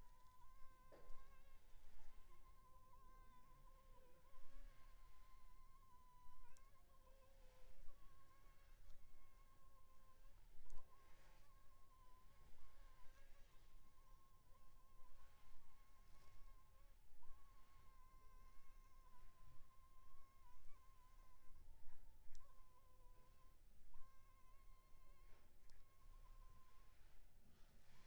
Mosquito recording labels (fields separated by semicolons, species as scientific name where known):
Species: Anopheles funestus s.s.; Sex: female; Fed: unfed; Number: one; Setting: cup